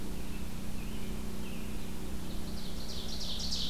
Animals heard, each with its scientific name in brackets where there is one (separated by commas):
Ovenbird (Seiurus aurocapilla), American Robin (Turdus migratorius)